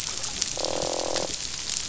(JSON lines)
{"label": "biophony, croak", "recorder": "SoundTrap 500"}